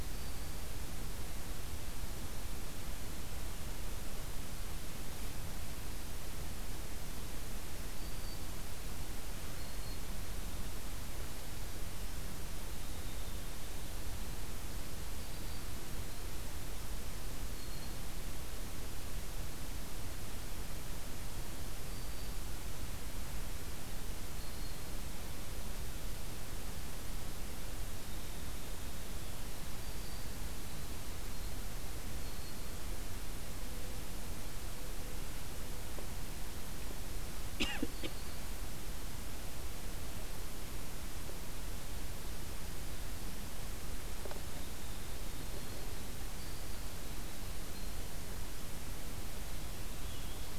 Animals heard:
Black-throated Green Warbler (Setophaga virens), Winter Wren (Troglodytes hiemalis), Purple Finch (Haemorhous purpureus)

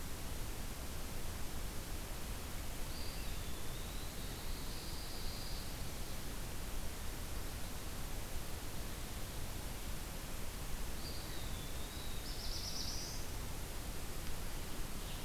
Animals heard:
Black-throated Blue Warbler (Setophaga caerulescens), Pine Warbler (Setophaga pinus), Eastern Wood-Pewee (Contopus virens)

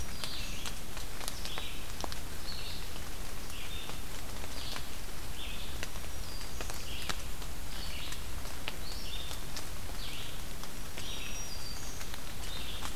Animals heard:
Red-eyed Vireo (Vireo olivaceus), Black-throated Green Warbler (Setophaga virens)

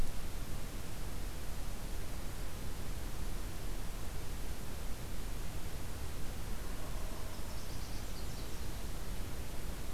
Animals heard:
Nashville Warbler (Leiothlypis ruficapilla)

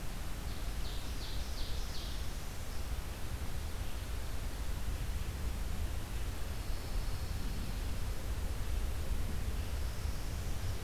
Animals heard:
Pine Warbler (Setophaga pinus), Northern Parula (Setophaga americana), Ovenbird (Seiurus aurocapilla)

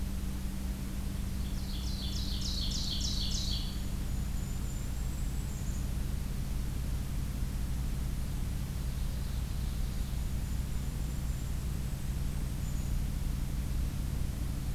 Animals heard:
Golden-crowned Kinglet (Regulus satrapa), Ovenbird (Seiurus aurocapilla)

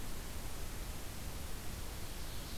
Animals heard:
Ovenbird (Seiurus aurocapilla)

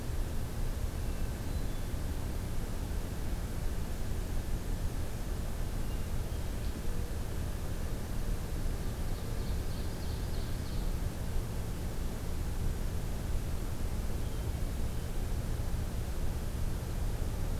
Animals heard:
Hermit Thrush (Catharus guttatus), Ovenbird (Seiurus aurocapilla)

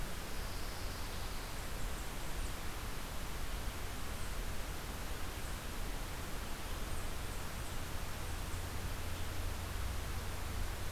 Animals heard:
Black-capped Chickadee (Poecile atricapillus), Pine Warbler (Setophaga pinus)

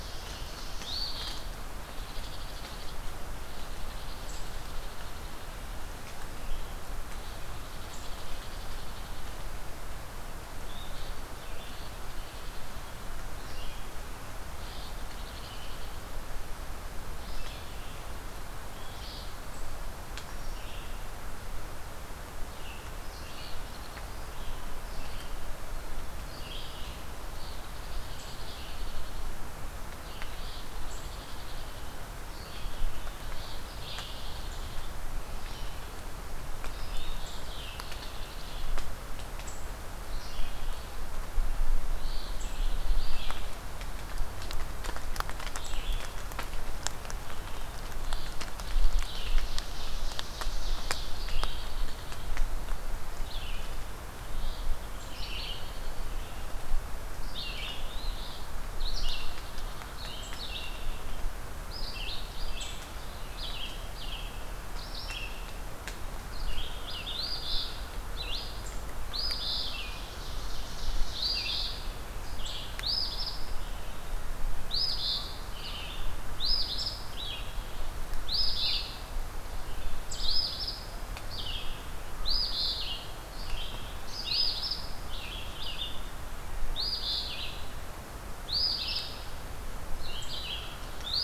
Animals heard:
Red-eyed Vireo (Vireo olivaceus), unknown mammal, Ovenbird (Seiurus aurocapilla), Eastern Phoebe (Sayornis phoebe)

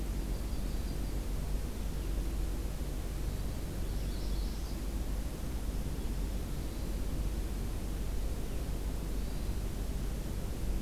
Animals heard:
Hermit Thrush (Catharus guttatus), Yellow-rumped Warbler (Setophaga coronata), Magnolia Warbler (Setophaga magnolia)

